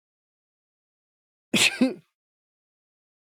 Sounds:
Sneeze